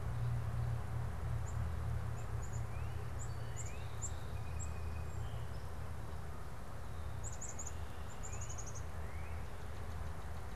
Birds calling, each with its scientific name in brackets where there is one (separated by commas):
Black-capped Chickadee (Poecile atricapillus), Song Sparrow (Melospiza melodia), Northern Cardinal (Cardinalis cardinalis)